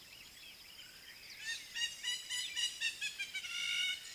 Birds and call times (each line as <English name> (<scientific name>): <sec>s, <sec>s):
Hamerkop (Scopus umbretta): 2.8s